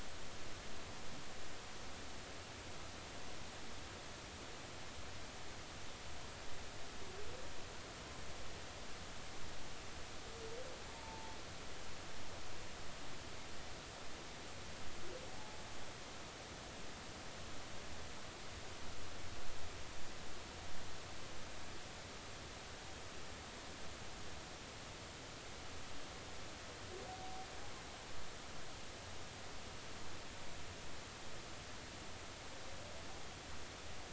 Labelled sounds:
10.9	11.4	humpback whale, 0.83 to 0.96 kHz

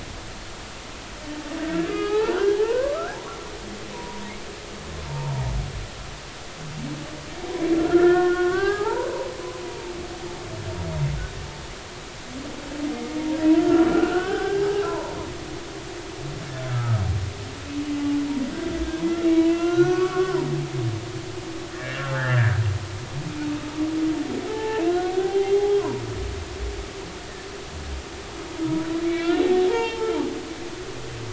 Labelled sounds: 1.6	3.2	humpback whale, 0.80 to 3.3 kHz
3.9	4.3	humpback whale, 0.86 to 1.0 kHz
5.1	5.3	humpback whale, 0.86 to 0.99 kHz
7.7	9.1	humpback whale, 0.80 to 2.1 kHz
10.9	11.2	humpback whale, 2.0 to 2.2 kHz
13.6	15.2	humpback whale, 0.80 to 1.7 kHz
16.7	17.0	humpback whale, 1.2 to 1.4 kHz
19.5	20.5	humpback whale, 0.90 to 2.9 kHz
21.7	22.6	humpback whale, 1.3 to 2.0 kHz
24.4	26.0	humpback whale, 0.80 to 4.1 kHz
28.6	30.2	humpback whale, 0.83 to 5.6 kHz

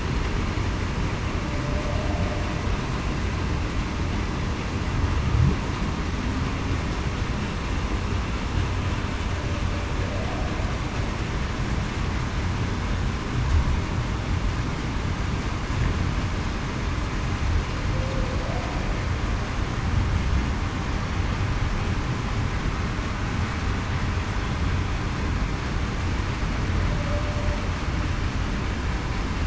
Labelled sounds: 1.6	2.0	humpback whale, 0.56 to 0.73 kHz
17.9	18.3	humpback whale, 0.49 to 0.54 kHz

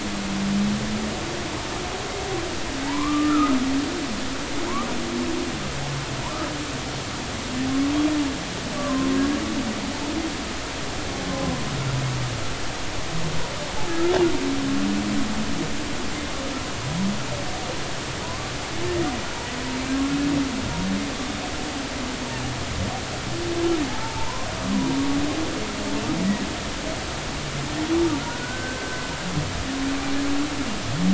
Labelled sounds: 2.8	3.6	humpback whale, 0.83 to 2.4 kHz
6.2	6.5	humpback whale, 0.90 to 1.3 kHz
8.8	9.1	humpback whale, 0.99 to 1.2 kHz
11.3	11.6	humpback whale, 0.96 to 1.1 kHz
18.2	18.5	humpback whale, 0.93 to 1.2 kHz
23.9	24.5	humpback whale, 0.80 to 1.1 kHz
28.3	29.0	humpback whale, 1.4 to 1.6 kHz

